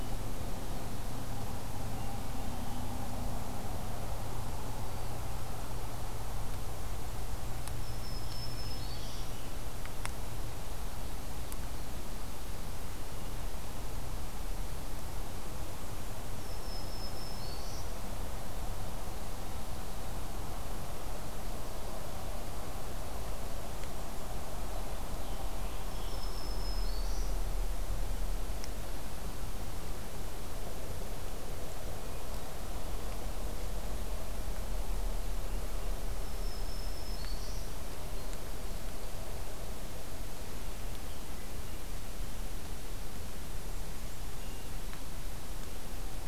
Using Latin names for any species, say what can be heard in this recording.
Catharus guttatus, Setophaga virens, Turdus migratorius